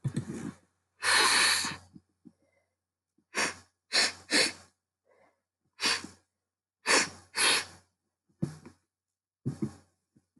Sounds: Sniff